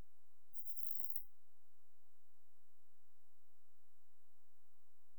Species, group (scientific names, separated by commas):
Platycleis affinis, Orthoptera